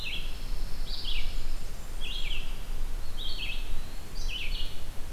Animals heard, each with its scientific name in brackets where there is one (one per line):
Black-throated Green Warbler (Setophaga virens)
Red-eyed Vireo (Vireo olivaceus)
Dark-eyed Junco (Junco hyemalis)
Pine Warbler (Setophaga pinus)
Eastern Wood-Pewee (Contopus virens)